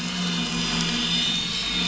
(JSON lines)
{"label": "anthrophony, boat engine", "recorder": "SoundTrap 500"}